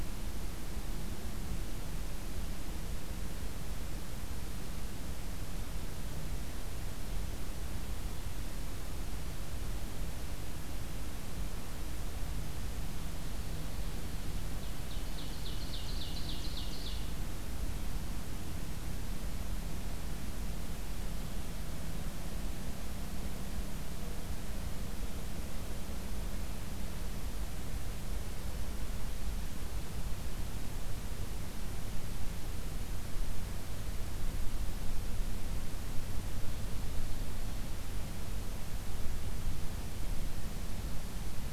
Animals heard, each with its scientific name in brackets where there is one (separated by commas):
Ovenbird (Seiurus aurocapilla), Mourning Dove (Zenaida macroura)